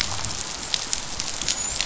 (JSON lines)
{"label": "biophony, dolphin", "recorder": "SoundTrap 500"}